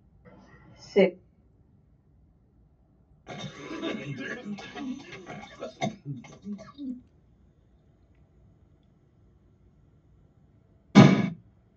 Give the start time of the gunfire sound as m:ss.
0:11